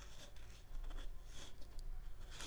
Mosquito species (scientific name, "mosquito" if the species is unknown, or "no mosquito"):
Mansonia uniformis